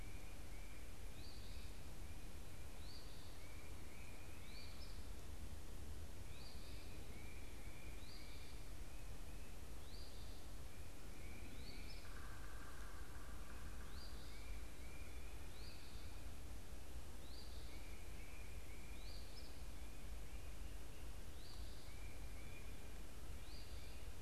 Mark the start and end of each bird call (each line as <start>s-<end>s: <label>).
0.0s-23.0s: Tufted Titmouse (Baeolophus bicolor)
0.0s-24.2s: Northern Waterthrush (Parkesia noveboracensis)